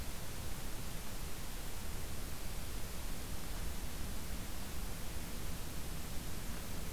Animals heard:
forest ambience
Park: Acadia National Park